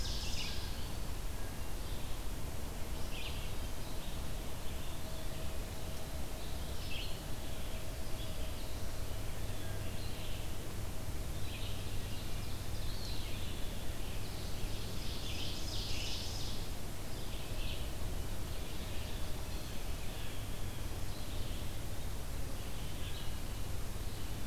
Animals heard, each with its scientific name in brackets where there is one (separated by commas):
Red-eyed Vireo (Vireo olivaceus), Blue Jay (Cyanocitta cristata), Ovenbird (Seiurus aurocapilla)